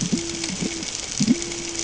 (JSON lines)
{"label": "ambient", "recorder": "HydroMoth"}